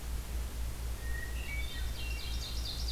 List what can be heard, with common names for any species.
Hermit Thrush, Ovenbird